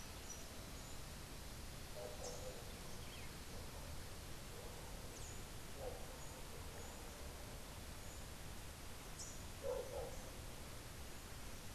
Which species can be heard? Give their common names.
Rufous-tailed Hummingbird, Rufous-capped Warbler